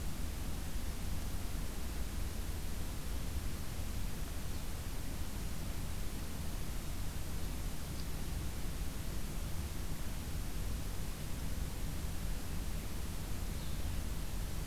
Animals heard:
forest ambience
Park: Acadia National Park